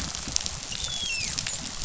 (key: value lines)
label: biophony, dolphin
recorder: SoundTrap 500